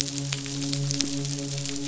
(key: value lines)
label: biophony, midshipman
recorder: SoundTrap 500